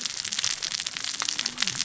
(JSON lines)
{"label": "biophony, cascading saw", "recorder": "SoundTrap 600 or HydroMoth"}